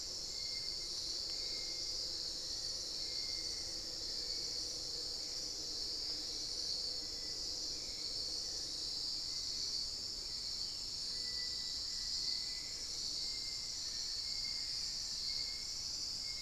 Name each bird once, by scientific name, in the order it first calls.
Crypturellus soui, Turdus hauxwelli, unidentified bird, Formicarius analis